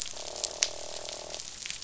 {"label": "biophony, croak", "recorder": "SoundTrap 500"}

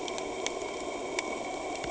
{"label": "anthrophony, boat engine", "recorder": "HydroMoth"}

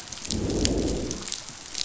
{"label": "biophony, growl", "recorder": "SoundTrap 500"}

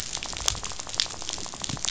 {"label": "biophony, rattle", "recorder": "SoundTrap 500"}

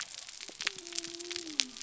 {"label": "biophony", "recorder": "SoundTrap 300"}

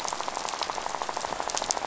{"label": "biophony, rattle", "recorder": "SoundTrap 500"}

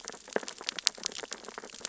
{"label": "biophony, sea urchins (Echinidae)", "recorder": "SoundTrap 600 or HydroMoth"}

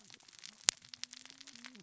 {"label": "biophony, cascading saw", "recorder": "SoundTrap 600 or HydroMoth"}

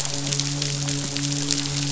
{"label": "biophony, midshipman", "recorder": "SoundTrap 500"}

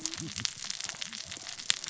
{"label": "biophony, cascading saw", "recorder": "SoundTrap 600 or HydroMoth"}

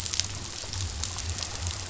{"label": "biophony", "recorder": "SoundTrap 500"}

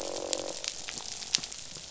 {"label": "biophony, croak", "recorder": "SoundTrap 500"}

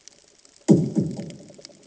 {"label": "anthrophony, bomb", "recorder": "HydroMoth"}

